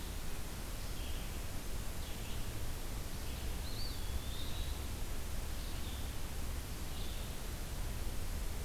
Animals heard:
Red-eyed Vireo (Vireo olivaceus)
Eastern Wood-Pewee (Contopus virens)

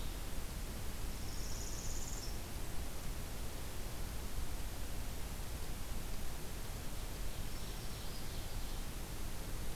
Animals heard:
Black-throated Green Warbler (Setophaga virens)
Northern Parula (Setophaga americana)
Ovenbird (Seiurus aurocapilla)

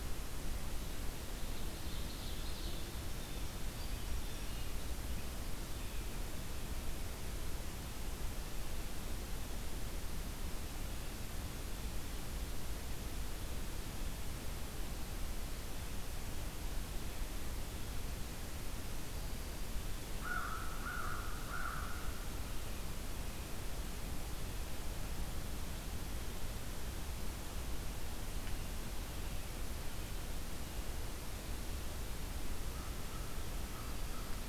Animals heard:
Blue Jay (Cyanocitta cristata)
American Crow (Corvus brachyrhynchos)
Ovenbird (Seiurus aurocapilla)
Hermit Thrush (Catharus guttatus)

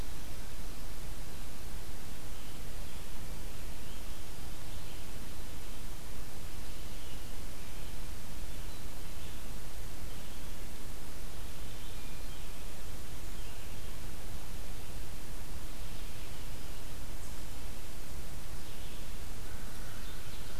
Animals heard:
Red-eyed Vireo (Vireo olivaceus)
Ovenbird (Seiurus aurocapilla)
American Crow (Corvus brachyrhynchos)

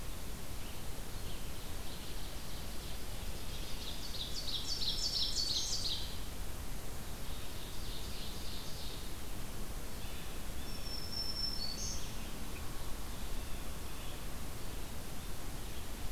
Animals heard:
Blue Jay (Cyanocitta cristata)
Ovenbird (Seiurus aurocapilla)
Black-throated Green Warbler (Setophaga virens)
Red-eyed Vireo (Vireo olivaceus)

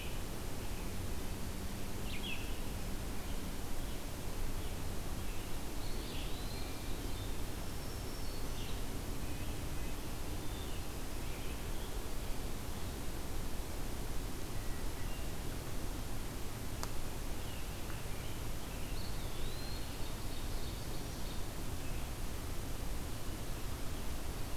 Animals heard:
American Robin (Turdus migratorius)
Ovenbird (Seiurus aurocapilla)
Eastern Wood-Pewee (Contopus virens)
Black-throated Green Warbler (Setophaga virens)
Red-breasted Nuthatch (Sitta canadensis)
Red-eyed Vireo (Vireo olivaceus)

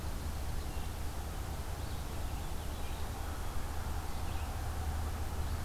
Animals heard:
Black-capped Chickadee (Poecile atricapillus)
Red-eyed Vireo (Vireo olivaceus)

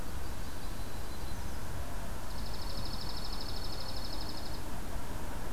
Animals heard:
Yellow-rumped Warbler (Setophaga coronata)
Dark-eyed Junco (Junco hyemalis)

